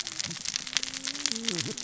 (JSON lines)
{"label": "biophony, cascading saw", "recorder": "SoundTrap 600 or HydroMoth"}